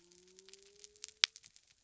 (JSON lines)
{"label": "biophony", "recorder": "SoundTrap 300"}